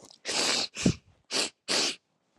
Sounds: Sniff